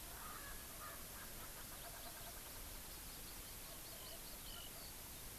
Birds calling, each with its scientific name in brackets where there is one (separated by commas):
Hawaii Amakihi (Chlorodrepanis virens), Erckel's Francolin (Pternistis erckelii)